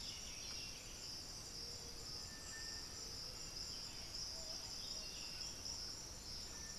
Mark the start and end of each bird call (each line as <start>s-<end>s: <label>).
0.0s-1.1s: White-winged Becard (Pachyramphus polychopterus)
0.0s-4.7s: unidentified bird
0.0s-5.9s: Buff-throated Saltator (Saltator maximus)
0.0s-6.8s: Striped Cuckoo (Tapera naevia)
1.8s-3.9s: Undulated Tinamou (Crypturellus undulatus)
5.2s-6.8s: Thrush-like Wren (Campylorhynchus turdinus)